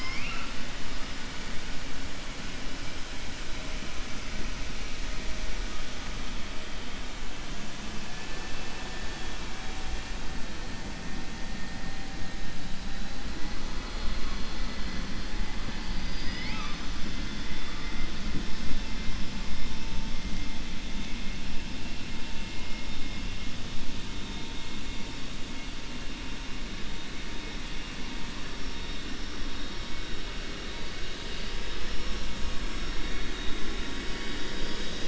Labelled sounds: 8.1	9.2	killer whale, 0.77 to 2.7 kHz
15.8	17.0	killer whale, 0.90 to 6.1 kHz

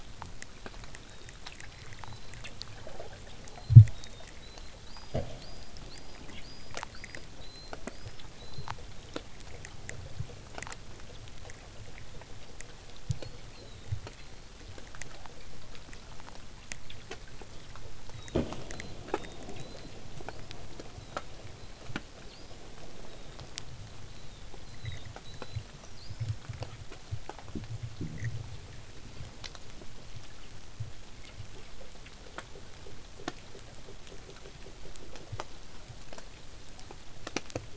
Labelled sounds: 0.6	2.4	killer whale, southern resident, whistle, 3.5 to 4.3 kHz
3.4	9.2	killer whale, southern resident, whistle, 3.4 to 8.0 kHz
13.2	14.5	killer whale, southern resident, whistle, 3.4 to 4.8 kHz
18.1	19.9	killer whale, southern resident, whistle, 3.5 to 4.2 kHz
20.3	20.5	killer whale, southern resident, whistle, 4.2 to 5.3 kHz
21.0	21.9	killer whale, southern resident, whistle, 3.4 to 4.2 kHz
22.2	22.6	killer whale, southern resident, whistle, 2.6 to 5.2 kHz
23.0	23.4	killer whale, southern resident, whistle, 3.5 to 4.0 kHz
24.0	26.4	killer whale, southern resident, whistle, 3.3 to 8.0 kHz
29.1	29.4	killer whale, southern resident, whistle, 4.1 to 5.6 kHz

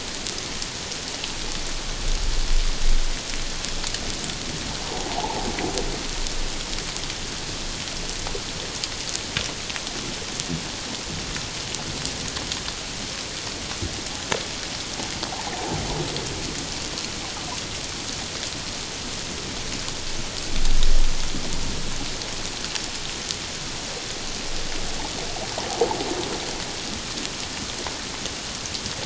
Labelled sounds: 4.8	5.5	humpback whale, 0.78 to 1.1 kHz
15.5	15.8	humpback whale, 0.78 to 1.0 kHz

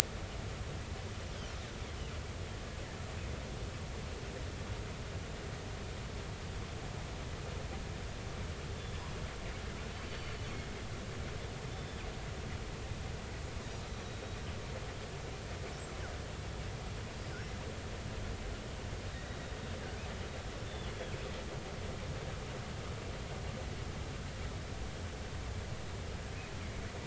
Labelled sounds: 8.8	9.0	killer whale, northern resident, 3.4 to 3.5 kHz
9.9	10.3	killer whale, northern resident, 2.9 to 4.6 kHz
11.7	12.0	killer whale, northern resident, 3.5 to 3.7 kHz
20.7	20.9	killer whale, northern resident, 3.0 to 3.6 kHz

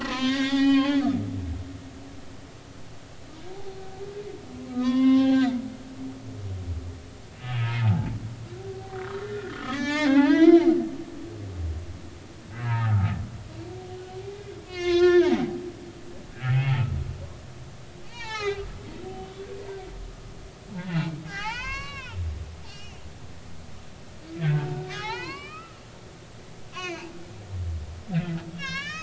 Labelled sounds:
0.0	1.1	humpback whale, 0.80 to 5.0 kHz
3.5	3.8	humpback whale, 0.80 to 0.93 kHz
4.7	5.7	humpback whale, 0.80 to 4.0 kHz
7.6	8.2	humpback whale, 0.80 to 0.99 kHz
9.1	10.7	humpback whale, 0.80 to 6.2 kHz
12.6	13.2	humpback whale, 0.80 to 1.9 kHz
14.7	15.6	humpback whale, 0.80 to 6.1 kHz
18.0	18.7	humpback whale, 0.80 to 5.8 kHz
20.7	22.2	humpback whale, 0.80 to 6.2 kHz
22.7	23.0	humpback whale, 2.5 to 5.9 kHz
24.9	25.8	humpback whale, 0.80 to 5.4 kHz
26.7	27.1	humpback whale, 0.80 to 6.7 kHz
28.5	29.0	humpback whale, 0.99 to 6.5 kHz

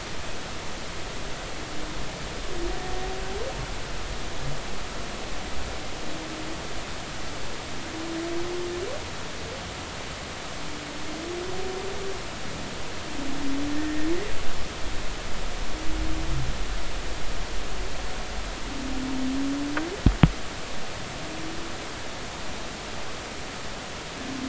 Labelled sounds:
13.7	14.1	humpback whale, 1.7 to 1.9 kHz

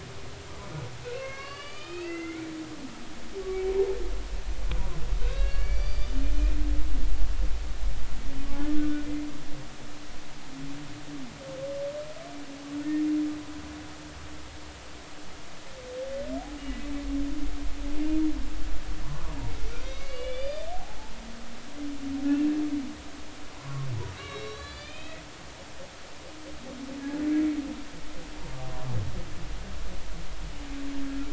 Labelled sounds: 1.1	2.5	humpback whale, 1.0 to 5.2 kHz
5.2	6.5	humpback whale, 1.4 to 6.1 kHz
8.8	9.0	humpback whale, 1.4 to 1.5 kHz
16.6	16.8	humpback whale, 2.8 to 2.9 kHz
19.0	21.0	humpback whale, 0.80 to 5.1 kHz
23.5	23.9	humpback whale, 0.93 to 1.2 kHz
24.2	25.9	humpback whale, 1.1 to 5.7 kHz

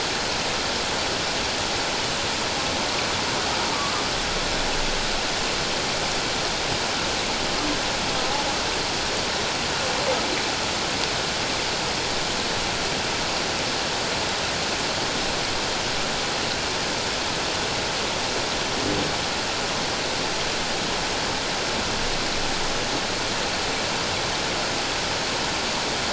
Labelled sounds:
3.7	4.0	humpback whale, 1.1 to 1.2 kHz

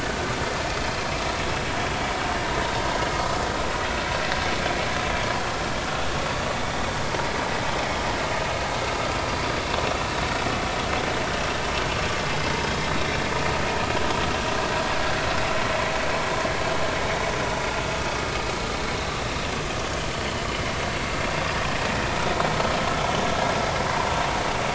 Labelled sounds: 3.1	3.4	vessel noise, 0.96 to 1.3 kHz

